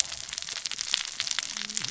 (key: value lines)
label: biophony, cascading saw
recorder: SoundTrap 600 or HydroMoth